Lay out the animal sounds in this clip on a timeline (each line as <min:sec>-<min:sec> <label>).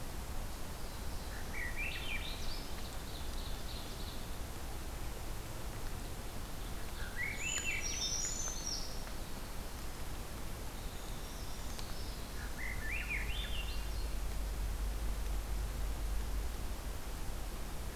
0:00.7-0:01.7 Black-throated Blue Warbler (Setophaga caerulescens)
0:01.3-0:02.8 Swainson's Thrush (Catharus ustulatus)
0:02.4-0:04.3 Ovenbird (Seiurus aurocapilla)
0:06.7-0:08.4 Ovenbird (Seiurus aurocapilla)
0:06.9-0:08.3 Swainson's Thrush (Catharus ustulatus)
0:07.4-0:09.0 Brown Creeper (Certhia americana)
0:08.8-0:12.7 Winter Wren (Troglodytes hiemalis)
0:10.9-0:12.4 Brown Creeper (Certhia americana)
0:12.3-0:14.1 Swainson's Thrush (Catharus ustulatus)